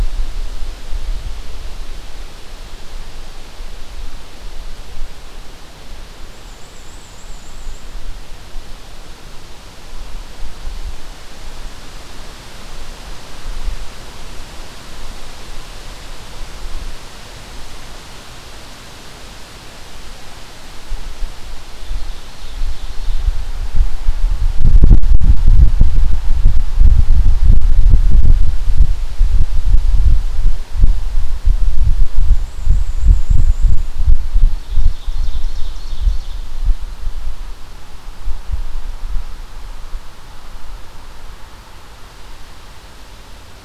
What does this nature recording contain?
Black-and-white Warbler, Ovenbird